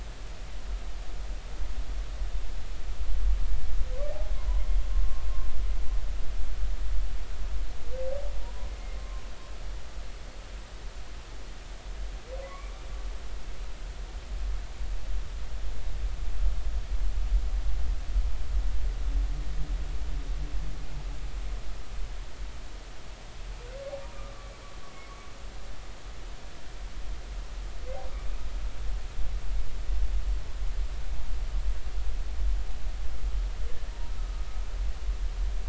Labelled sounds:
8.4	9.2	humpback whale, 0.90 to 1.1 kHz
12.4	12.7	humpback whale, 0.96 to 1.2 kHz
34.2	34.4	humpback whale, 1.2 to 1.3 kHz

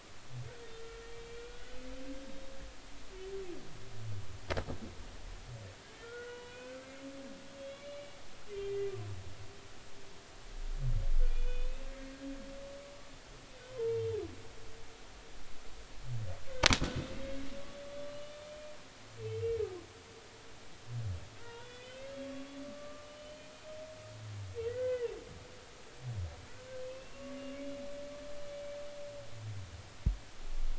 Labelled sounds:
0.8	1.8	humpback whale, 1.3 to 2.4 kHz
6.0	6.8	humpback whale, 0.93 to 3.0 kHz
7.6	8.9	humpback whale, 2.0 to 3.5 kHz
11.3	11.9	humpback whale, 2.3 to 3.6 kHz
13.7	14.0	humpback whale, 0.86 to 1.1 kHz
17.0	17.2	humpback whale, 2.5 to 2.8 kHz
18.2	18.5	humpback whale, 3.5 to 3.6 kHz
19.2	19.6	humpback whale, 2.5 to 2.9 kHz
21.4	22.3	humpback whale, 0.90 to 3.6 kHz
22.6	23.5	humpback whale, 1.1 to 4.3 kHz
24.7	25.1	humpback whale, 1.4 to 2.1 kHz
26.8	27.4	humpback whale, 1.1 to 2.8 kHz

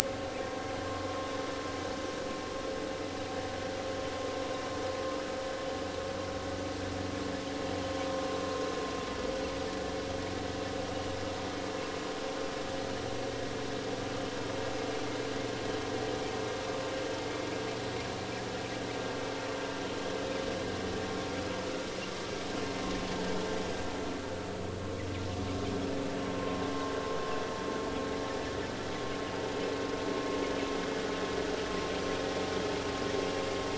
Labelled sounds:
26.4	26.6	vessel noise, 0.96 to 1.1 kHz

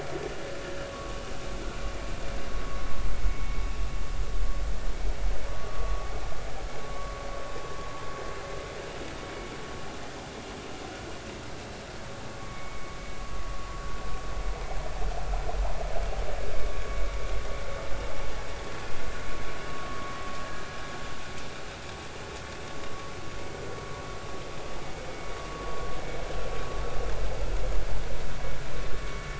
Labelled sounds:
3.2	3.6	vessel noise, 2.1 to 2.3 kHz
5.8	6.1	vessel noise, 1.1 to 1.2 kHz
6.9	7.1	vessel noise, 1.0 to 1.2 kHz
12.3	12.9	vessel noise, 1.1 to 2.3 kHz

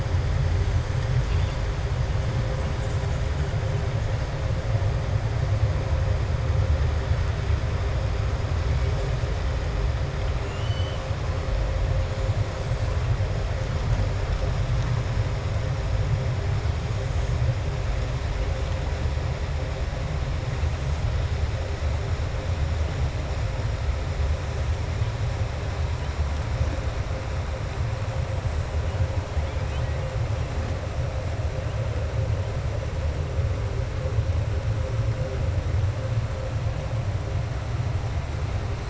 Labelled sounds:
10.4	11.0	killer whale, southern resident, 2.3 to 7.1 kHz

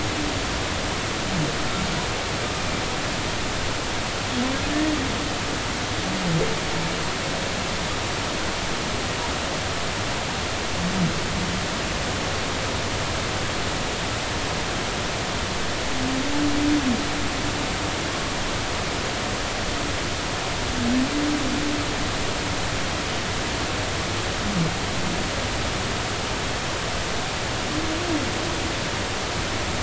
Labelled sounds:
4.7	4.9	humpback whale, 1.7 to 1.9 kHz

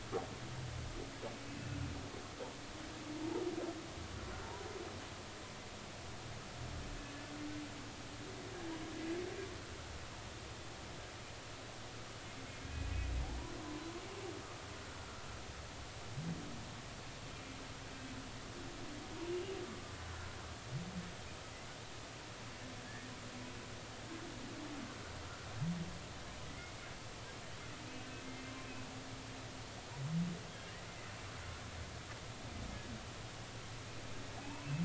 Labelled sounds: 19.6	19.9	humpback whale, 1.1 to 1.2 kHz
22.8	23.1	humpback whale, 1.6 to 1.9 kHz
26.5	26.8	humpback whale, 1.9 to 2.2 kHz
28.2	28.5	humpback whale, 2.0 to 2.2 kHz
34.3	34.7	humpback whale, 0.80 to 1.1 kHz

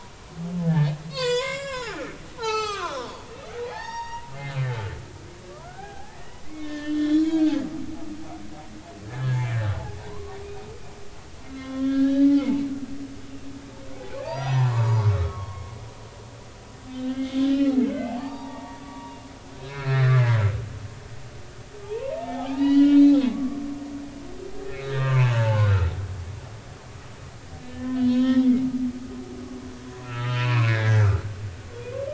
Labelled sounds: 0.6	3.2	humpback whale, 0.80 to 7.5 kHz
3.7	7.5	humpback whale, 0.80 to 6.6 kHz
9.0	9.6	humpback whale, 1.6 to 2.5 kHz
10.0	10.7	humpback whale, 0.90 to 2.6 kHz
11.5	12.5	humpback whale, 1.0 to 4.1 kHz
14.2	15.6	humpback whale, 0.80 to 6.0 kHz
16.9	19.2	humpback whale, 0.80 to 4.8 kHz
19.6	20.4	humpback whale, 1.2 to 4.4 kHz
21.8	23.6	humpback whale, 0.80 to 6.0 kHz
24.8	25.9	humpback whale, 0.80 to 3.9 kHz
27.6	28.5	humpback whale, 0.96 to 3.5 kHz
30.0	31.0	humpback whale, 1.0 to 4.4 kHz

